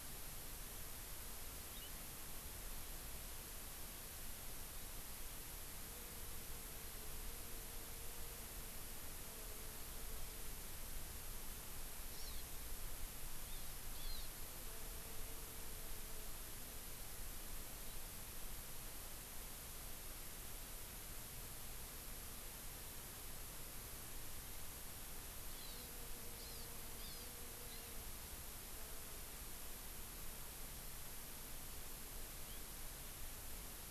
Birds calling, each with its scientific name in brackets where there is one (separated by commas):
House Finch (Haemorhous mexicanus), Hawaii Amakihi (Chlorodrepanis virens)